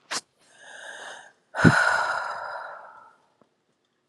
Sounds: Sigh